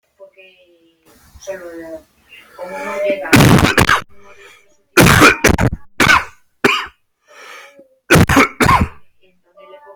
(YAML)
expert_labels:
- quality: poor
  cough_type: unknown
  dyspnea: false
  wheezing: false
  stridor: false
  choking: false
  congestion: false
  nothing: true
  diagnosis: COVID-19
  severity: mild
age: 41
gender: male
respiratory_condition: false
fever_muscle_pain: true
status: symptomatic